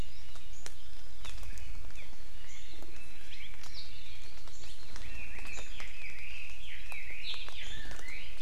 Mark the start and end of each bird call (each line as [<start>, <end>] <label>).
[1.23, 1.33] Hawaii Amakihi (Chlorodrepanis virens)
[1.93, 2.03] Hawaii Amakihi (Chlorodrepanis virens)
[2.43, 2.73] Hawaii Amakihi (Chlorodrepanis virens)
[3.33, 3.53] Hawaii Amakihi (Chlorodrepanis virens)
[5.03, 8.33] Chinese Hwamei (Garrulax canorus)